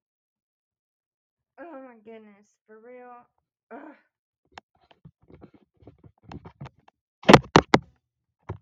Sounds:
Sigh